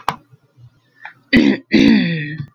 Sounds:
Throat clearing